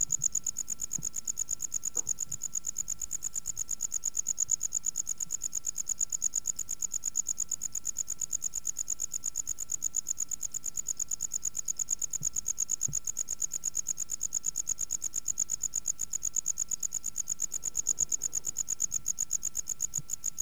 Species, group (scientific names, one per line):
Gryllodes sigillatus
Orthoptera